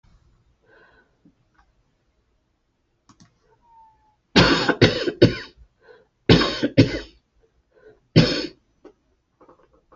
{"expert_labels": [{"quality": "good", "cough_type": "dry", "dyspnea": true, "wheezing": false, "stridor": true, "choking": false, "congestion": false, "nothing": false, "diagnosis": "obstructive lung disease", "severity": "mild"}], "age": 65, "gender": "female", "respiratory_condition": true, "fever_muscle_pain": false, "status": "healthy"}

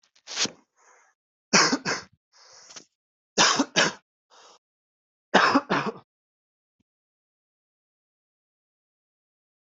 {"expert_labels": [{"quality": "ok", "cough_type": "unknown", "dyspnea": false, "wheezing": false, "stridor": false, "choking": false, "congestion": false, "nothing": true, "diagnosis": "healthy cough", "severity": "pseudocough/healthy cough"}, {"quality": "good", "cough_type": "dry", "dyspnea": true, "wheezing": false, "stridor": false, "choking": false, "congestion": false, "nothing": false, "diagnosis": "obstructive lung disease", "severity": "mild"}, {"quality": "good", "cough_type": "dry", "dyspnea": false, "wheezing": false, "stridor": false, "choking": false, "congestion": false, "nothing": true, "diagnosis": "upper respiratory tract infection", "severity": "mild"}, {"quality": "good", "cough_type": "dry", "dyspnea": false, "wheezing": false, "stridor": false, "choking": false, "congestion": false, "nothing": true, "diagnosis": "COVID-19", "severity": "mild"}], "age": 25, "gender": "male", "respiratory_condition": false, "fever_muscle_pain": true, "status": "symptomatic"}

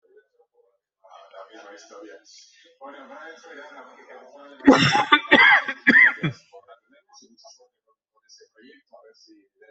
{"expert_labels": [{"quality": "poor", "cough_type": "wet", "dyspnea": false, "wheezing": true, "stridor": false, "choking": false, "congestion": false, "nothing": false, "diagnosis": "obstructive lung disease", "severity": "mild"}], "age": 42, "gender": "male", "respiratory_condition": false, "fever_muscle_pain": false, "status": "symptomatic"}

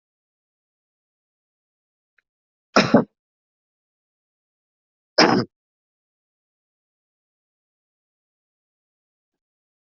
{"expert_labels": [{"quality": "good", "cough_type": "dry", "dyspnea": false, "wheezing": false, "stridor": false, "choking": false, "congestion": false, "nothing": true, "diagnosis": "healthy cough", "severity": "pseudocough/healthy cough"}], "age": 30, "gender": "male", "respiratory_condition": false, "fever_muscle_pain": true, "status": "COVID-19"}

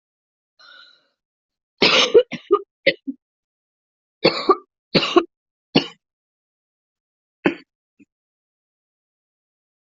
{"expert_labels": [{"quality": "ok", "cough_type": "dry", "dyspnea": false, "wheezing": false, "stridor": false, "choking": false, "congestion": false, "nothing": true, "diagnosis": "COVID-19", "severity": "mild"}, {"quality": "ok", "cough_type": "dry", "dyspnea": false, "wheezing": false, "stridor": false, "choking": false, "congestion": false, "nothing": true, "diagnosis": "COVID-19", "severity": "mild"}, {"quality": "good", "cough_type": "wet", "dyspnea": false, "wheezing": false, "stridor": false, "choking": false, "congestion": false, "nothing": true, "diagnosis": "upper respiratory tract infection", "severity": "mild"}, {"quality": "good", "cough_type": "dry", "dyspnea": false, "wheezing": false, "stridor": false, "choking": false, "congestion": false, "nothing": true, "diagnosis": "upper respiratory tract infection", "severity": "mild"}], "age": 22, "gender": "female", "respiratory_condition": false, "fever_muscle_pain": false, "status": "healthy"}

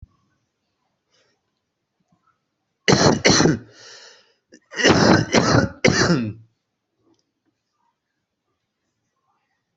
{"expert_labels": [{"quality": "ok", "cough_type": "wet", "dyspnea": false, "wheezing": false, "stridor": false, "choking": false, "congestion": false, "nothing": true, "diagnosis": "lower respiratory tract infection", "severity": "mild"}], "age": 45, "gender": "male", "respiratory_condition": false, "fever_muscle_pain": false, "status": "symptomatic"}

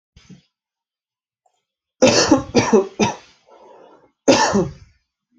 {"expert_labels": [{"quality": "ok", "cough_type": "dry", "dyspnea": false, "wheezing": false, "stridor": false, "choking": false, "congestion": false, "nothing": true, "diagnosis": "COVID-19", "severity": "mild"}, {"quality": "good", "cough_type": "dry", "dyspnea": false, "wheezing": false, "stridor": false, "choking": false, "congestion": false, "nothing": true, "diagnosis": "upper respiratory tract infection", "severity": "mild"}, {"quality": "good", "cough_type": "dry", "dyspnea": false, "wheezing": false, "stridor": false, "choking": false, "congestion": false, "nothing": true, "diagnosis": "upper respiratory tract infection", "severity": "mild"}, {"quality": "good", "cough_type": "dry", "dyspnea": false, "wheezing": false, "stridor": false, "choking": false, "congestion": false, "nothing": true, "diagnosis": "upper respiratory tract infection", "severity": "mild"}], "age": 27, "gender": "male", "respiratory_condition": false, "fever_muscle_pain": false, "status": "COVID-19"}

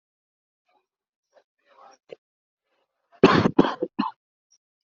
{"expert_labels": [{"quality": "poor", "cough_type": "unknown", "dyspnea": false, "wheezing": false, "stridor": false, "choking": false, "congestion": false, "nothing": true, "diagnosis": "lower respiratory tract infection", "severity": "mild"}], "age": 26, "gender": "male", "respiratory_condition": false, "fever_muscle_pain": false, "status": "healthy"}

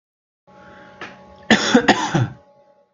{"expert_labels": [{"quality": "good", "cough_type": "dry", "dyspnea": false, "wheezing": false, "stridor": false, "choking": false, "congestion": false, "nothing": true, "diagnosis": "healthy cough", "severity": "pseudocough/healthy cough"}], "gender": "female", "respiratory_condition": false, "fever_muscle_pain": false, "status": "COVID-19"}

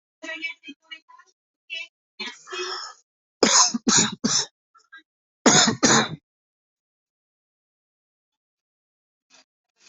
{"expert_labels": [{"quality": "ok", "cough_type": "wet", "dyspnea": false, "wheezing": false, "stridor": false, "choking": false, "congestion": false, "nothing": true, "diagnosis": "lower respiratory tract infection", "severity": "mild"}], "age": 34, "gender": "male", "respiratory_condition": true, "fever_muscle_pain": false, "status": "COVID-19"}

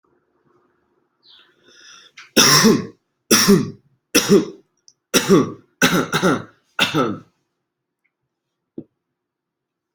{"expert_labels": [{"quality": "good", "cough_type": "dry", "dyspnea": false, "wheezing": false, "stridor": false, "choking": false, "congestion": false, "nothing": true, "diagnosis": "upper respiratory tract infection", "severity": "mild"}], "age": 24, "gender": "male", "respiratory_condition": false, "fever_muscle_pain": false, "status": "healthy"}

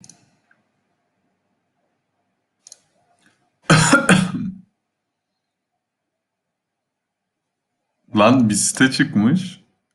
{"expert_labels": [{"quality": "ok", "cough_type": "unknown", "dyspnea": false, "wheezing": false, "stridor": false, "choking": false, "congestion": false, "nothing": true, "diagnosis": "healthy cough", "severity": "pseudocough/healthy cough"}], "age": 21, "gender": "male", "respiratory_condition": false, "fever_muscle_pain": true, "status": "healthy"}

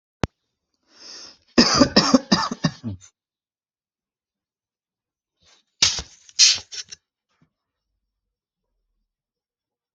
{"expert_labels": [{"quality": "ok", "cough_type": "unknown", "dyspnea": false, "wheezing": false, "stridor": false, "choking": false, "congestion": false, "nothing": true, "diagnosis": "lower respiratory tract infection", "severity": "mild"}], "age": 46, "gender": "male", "respiratory_condition": false, "fever_muscle_pain": false, "status": "healthy"}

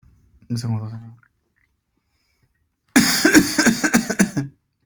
{"expert_labels": [{"quality": "good", "cough_type": "dry", "dyspnea": false, "wheezing": false, "stridor": false, "choking": false, "congestion": false, "nothing": true, "diagnosis": "healthy cough", "severity": "pseudocough/healthy cough"}], "age": 36, "gender": "male", "respiratory_condition": true, "fever_muscle_pain": true, "status": "symptomatic"}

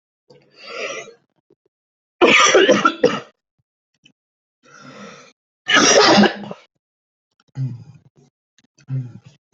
{"expert_labels": [{"quality": "good", "cough_type": "wet", "dyspnea": false, "wheezing": false, "stridor": false, "choking": true, "congestion": false, "nothing": false, "diagnosis": "lower respiratory tract infection", "severity": "mild"}], "age": 27, "gender": "male", "respiratory_condition": false, "fever_muscle_pain": false, "status": "symptomatic"}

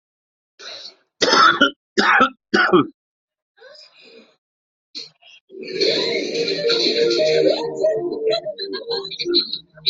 {"expert_labels": [{"quality": "poor", "cough_type": "dry", "dyspnea": false, "wheezing": false, "stridor": false, "choking": false, "congestion": false, "nothing": true, "diagnosis": "upper respiratory tract infection", "severity": "mild"}], "age": 55, "gender": "male", "respiratory_condition": false, "fever_muscle_pain": false, "status": "symptomatic"}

